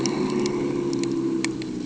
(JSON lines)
{"label": "ambient", "recorder": "HydroMoth"}